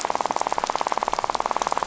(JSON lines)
{"label": "biophony, rattle", "recorder": "SoundTrap 500"}